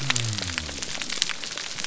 {"label": "biophony", "recorder": "SoundTrap 300"}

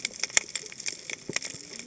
{"label": "biophony, cascading saw", "recorder": "HydroMoth"}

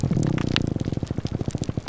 {"label": "biophony, grouper groan", "recorder": "SoundTrap 300"}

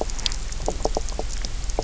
{"label": "biophony, knock croak", "recorder": "SoundTrap 300"}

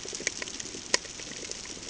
{"label": "ambient", "recorder": "HydroMoth"}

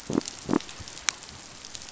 {"label": "biophony", "recorder": "SoundTrap 500"}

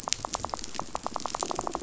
{"label": "biophony, rattle", "recorder": "SoundTrap 500"}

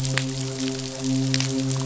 {"label": "biophony, midshipman", "recorder": "SoundTrap 500"}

